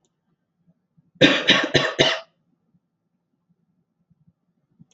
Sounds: Cough